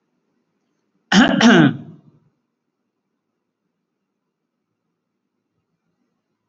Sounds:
Cough